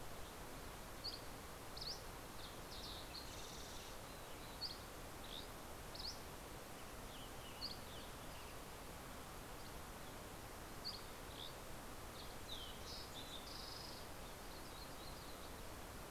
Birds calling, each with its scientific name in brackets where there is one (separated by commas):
Dusky Flycatcher (Empidonax oberholseri), Green-tailed Towhee (Pipilo chlorurus), Yellow-rumped Warbler (Setophaga coronata), Western Tanager (Piranga ludoviciana), Fox Sparrow (Passerella iliaca)